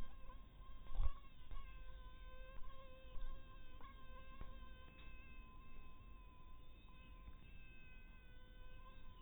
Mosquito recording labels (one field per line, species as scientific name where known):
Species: mosquito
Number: one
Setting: cup